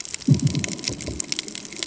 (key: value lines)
label: anthrophony, bomb
recorder: HydroMoth